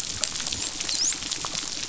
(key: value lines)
label: biophony, dolphin
recorder: SoundTrap 500